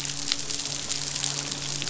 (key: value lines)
label: biophony, midshipman
recorder: SoundTrap 500